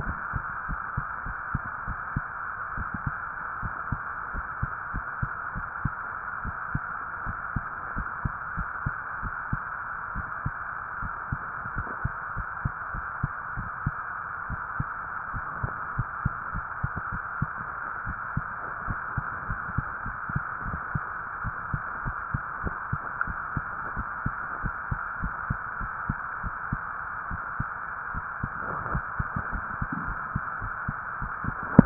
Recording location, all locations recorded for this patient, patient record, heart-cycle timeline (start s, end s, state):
tricuspid valve (TV)
aortic valve (AV)+pulmonary valve (PV)+tricuspid valve (TV)+mitral valve (MV)
#Age: Child
#Sex: Female
#Height: 144.0 cm
#Weight: 32.6 kg
#Pregnancy status: False
#Murmur: Absent
#Murmur locations: nan
#Most audible location: nan
#Systolic murmur timing: nan
#Systolic murmur shape: nan
#Systolic murmur grading: nan
#Systolic murmur pitch: nan
#Systolic murmur quality: nan
#Diastolic murmur timing: nan
#Diastolic murmur shape: nan
#Diastolic murmur grading: nan
#Diastolic murmur pitch: nan
#Diastolic murmur quality: nan
#Outcome: Normal
#Campaign: 2015 screening campaign
0.00	0.04	unannotated
0.04	0.15	S1
0.15	0.34	systole
0.34	0.46	S2
0.46	0.68	diastole
0.68	0.80	S1
0.80	0.94	systole
0.94	1.08	S2
1.08	1.24	diastole
1.24	1.36	S1
1.36	1.50	systole
1.50	1.64	S2
1.64	1.86	diastole
1.86	2.00	S1
2.00	2.12	systole
2.12	2.26	S2
2.26	2.73	diastole
2.73	2.88	S1
2.88	3.04	systole
3.04	3.16	S2
3.16	3.62	diastole
3.62	3.76	S1
3.76	3.88	systole
3.88	4.02	S2
4.02	4.28	diastole
4.28	4.44	S1
4.44	4.58	systole
4.58	4.74	S2
4.74	4.94	diastole
4.94	5.04	S1
5.04	5.18	systole
5.18	5.30	S2
5.30	5.54	diastole
5.54	5.68	S1
5.68	5.82	systole
5.82	5.92	S2
5.92	6.41	diastole
6.41	6.54	S1
6.54	6.72	systole
6.72	6.82	S2
6.82	7.25	diastole
7.25	7.38	S1
7.38	7.52	systole
7.52	7.66	S2
7.66	7.94	diastole
7.94	8.08	S1
8.08	8.22	systole
8.22	8.36	S2
8.36	8.54	diastole
8.54	8.68	S1
8.68	8.82	systole
8.82	8.94	S2
8.94	9.18	diastole
9.18	9.32	S1
9.32	9.48	systole
9.48	9.60	S2
9.60	10.14	diastole
10.14	10.26	S1
10.26	10.42	systole
10.42	10.54	S2
10.54	11.00	diastole
11.00	11.12	S1
11.12	11.28	systole
11.28	11.42	S2
11.42	11.70	diastole
11.70	11.86	S1
11.86	12.00	systole
12.00	12.16	S2
12.16	12.34	diastole
12.34	12.46	S1
12.46	12.62	systole
12.62	12.72	S2
12.72	12.92	diastole
12.92	13.06	S1
13.06	13.20	systole
13.20	13.34	S2
13.34	13.56	diastole
13.56	13.70	S1
13.70	13.84	systole
13.84	13.94	S2
13.94	14.48	diastole
14.48	14.60	S1
14.60	14.76	systole
14.76	14.89	S2
14.89	15.32	diastole
15.32	15.46	S1
15.46	15.60	systole
15.60	15.74	S2
15.74	15.94	diastole
15.94	16.08	S1
16.08	16.23	systole
16.23	16.34	S2
16.34	16.52	diastole
16.52	16.66	S1
16.66	16.80	systole
16.80	16.92	S2
16.92	17.12	diastole
17.12	17.22	S1
17.22	17.38	systole
17.38	17.52	S2
17.52	31.86	unannotated